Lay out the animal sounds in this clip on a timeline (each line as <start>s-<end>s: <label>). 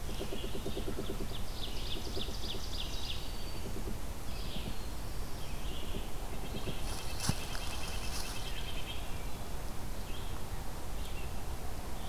0.0s-6.1s: Red-eyed Vireo (Vireo olivaceus)
1.2s-3.8s: Ovenbird (Seiurus aurocapilla)
2.5s-3.8s: Black-throated Green Warbler (Setophaga virens)
6.3s-9.3s: Red-breasted Nuthatch (Sitta canadensis)